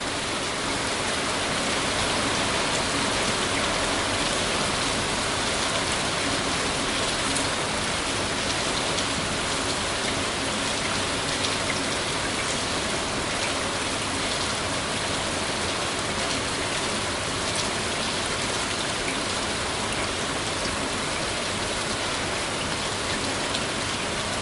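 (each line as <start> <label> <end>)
0.0 Heavy and loud rain with raindrops falling on the ground. 24.4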